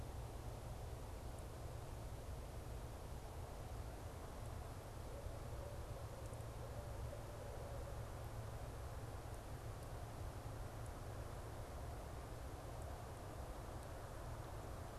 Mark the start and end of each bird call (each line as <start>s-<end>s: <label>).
5.0s-8.3s: Barred Owl (Strix varia)